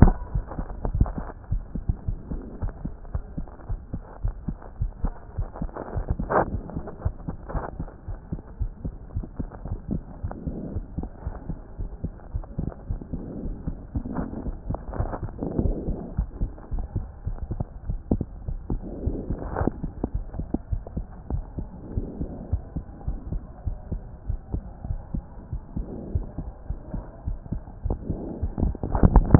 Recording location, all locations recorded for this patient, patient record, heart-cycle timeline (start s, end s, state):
aortic valve (AV)
aortic valve (AV)+pulmonary valve (PV)+tricuspid valve (TV)+mitral valve (MV)
#Age: Child
#Sex: Male
#Height: 126.0 cm
#Weight: 15.1 kg
#Pregnancy status: False
#Murmur: Absent
#Murmur locations: nan
#Most audible location: nan
#Systolic murmur timing: nan
#Systolic murmur shape: nan
#Systolic murmur grading: nan
#Systolic murmur pitch: nan
#Systolic murmur quality: nan
#Diastolic murmur timing: nan
#Diastolic murmur shape: nan
#Diastolic murmur grading: nan
#Diastolic murmur pitch: nan
#Diastolic murmur quality: nan
#Outcome: Abnormal
#Campaign: 2014 screening campaign
0.00	0.16	S2
0.16	0.34	diastole
0.34	0.46	S1
0.46	0.56	systole
0.56	0.66	S2
0.66	0.92	diastole
0.92	1.10	S1
1.10	1.18	systole
1.18	1.28	S2
1.28	1.52	diastole
1.52	1.64	S1
1.64	1.74	systole
1.74	1.82	S2
1.82	2.06	diastole
2.06	2.18	S1
2.18	2.30	systole
2.30	2.40	S2
2.40	2.64	diastole
2.64	2.74	S1
2.74	2.82	systole
2.82	2.92	S2
2.92	3.16	diastole
3.16	3.26	S1
3.26	3.36	systole
3.36	3.46	S2
3.46	3.70	diastole
3.70	3.80	S1
3.80	3.90	systole
3.90	4.00	S2
4.00	4.24	diastole
4.24	4.36	S1
4.36	4.46	systole
4.46	4.56	S2
4.56	4.80	diastole
4.80	4.92	S1
4.92	5.02	systole
5.02	5.14	S2
5.14	5.38	diastole
5.38	5.50	S1
5.50	5.60	systole
5.60	5.70	S2
5.70	5.94	diastole
5.94	6.08	S1
6.08	6.18	systole
6.18	6.28	S2
6.28	6.50	diastole
6.50	6.62	S1
6.62	6.72	systole
6.72	6.82	S2
6.82	7.04	diastole
7.04	7.14	S1
7.14	7.24	systole
7.24	7.34	S2
7.34	7.54	diastole
7.54	7.64	S1
7.64	7.76	systole
7.76	7.86	S2
7.86	8.10	diastole
8.10	8.20	S1
8.20	8.30	systole
8.30	8.40	S2
8.40	8.62	diastole
8.62	8.72	S1
8.72	8.82	systole
8.82	8.92	S2
8.92	9.16	diastole
9.16	9.26	S1
9.26	9.38	systole
9.38	9.48	S2
9.48	9.70	diastole
9.70	9.80	S1
9.80	9.90	systole
9.90	10.02	S2
10.02	10.24	diastole
10.24	10.36	S1
10.36	10.46	systole
10.46	10.54	S2
10.54	10.76	diastole
10.76	10.86	S1
10.86	10.96	systole
10.96	11.04	S2
11.04	11.26	diastole
11.26	11.36	S1
11.36	11.46	systole
11.46	11.56	S2
11.56	11.80	diastole
11.80	11.92	S1
11.92	12.02	systole
12.02	12.12	S2
12.12	12.36	diastole
12.36	12.46	S1
12.46	12.58	systole
12.58	12.68	S2
12.68	12.90	diastole
12.90	13.00	S1
13.00	13.10	systole
13.10	13.20	S2
13.20	13.42	diastole
13.42	13.54	S1
13.54	13.64	systole
13.64	13.74	S2
13.74	13.96	diastole
13.96	14.08	S1
14.08	14.18	systole
14.18	14.28	S2
14.28	14.46	diastole
14.46	14.58	S1
14.58	14.68	systole
14.68	14.78	S2
14.78	14.98	diastole
14.98	15.12	S1
15.12	15.22	systole
15.22	15.32	S2
15.32	15.56	diastole
15.56	15.76	S1
15.76	15.86	systole
15.86	15.98	S2
15.98	16.20	diastole
16.20	16.30	S1
16.30	16.40	systole
16.40	16.50	S2
16.50	16.74	diastole
16.74	16.86	S1
16.86	16.94	systole
16.94	17.04	S2
17.04	17.28	diastole
17.28	17.40	S1
17.40	17.52	systole
17.52	17.66	S2
17.66	17.88	diastole
17.88	18.00	S1
18.00	18.10	systole
18.10	18.22	S2
18.22	18.48	diastole
18.48	18.60	S1
18.60	18.70	systole
18.70	18.80	S2
18.80	19.04	diastole
19.04	19.16	S1
19.16	19.26	systole
19.26	19.36	S2
19.36	19.58	diastole
19.58	19.72	S1
19.72	19.82	systole
19.82	19.92	S2
19.92	20.16	diastole
20.16	20.28	S1
20.28	20.38	systole
20.38	20.48	S2
20.48	20.72	diastole
20.72	20.84	S1
20.84	20.96	systole
20.96	21.06	S2
21.06	21.32	diastole
21.32	21.44	S1
21.44	21.56	systole
21.56	21.68	S2
21.68	21.94	diastole
21.94	22.08	S1
22.08	22.18	systole
22.18	22.28	S2
22.28	22.52	diastole
22.52	22.64	S1
22.64	22.74	systole
22.74	22.84	S2
22.84	23.06	diastole
23.06	23.18	S1
23.18	23.28	systole
23.28	23.40	S2
23.40	23.66	diastole
23.66	23.78	S1
23.78	23.90	systole
23.90	24.02	S2
24.02	24.28	diastole
24.28	24.40	S1
24.40	24.52	systole
24.52	24.62	S2
24.62	24.88	diastole
24.88	25.00	S1
25.00	25.12	systole
25.12	25.24	S2
25.24	25.50	diastole
25.50	25.62	S1
25.62	25.74	systole
25.74	25.86	S2
25.86	26.12	diastole
26.12	26.26	S1
26.26	26.36	systole
26.36	26.46	S2
26.46	26.70	diastole
26.70	26.80	S1
26.80	26.92	systole
26.92	27.02	S2
27.02	27.28	diastole
27.28	27.40	S1
27.40	27.50	systole
27.50	27.60	S2
27.60	27.86	diastole
27.86	28.00	S1
28.00	28.16	systole
28.16	28.30	S2
28.30	28.58	diastole
28.58	28.74	S1
28.74	28.84	systole
28.84	28.96	S2
28.96	29.39	diastole